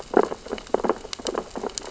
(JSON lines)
{"label": "biophony, sea urchins (Echinidae)", "recorder": "SoundTrap 600 or HydroMoth"}